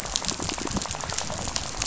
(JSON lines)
{"label": "biophony, rattle", "recorder": "SoundTrap 500"}